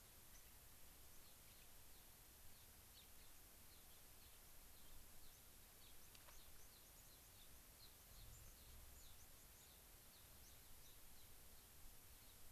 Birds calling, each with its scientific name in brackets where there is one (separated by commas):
Gray-crowned Rosy-Finch (Leucosticte tephrocotis), White-crowned Sparrow (Zonotrichia leucophrys)